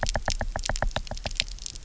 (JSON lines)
{"label": "biophony, knock", "recorder": "SoundTrap 300"}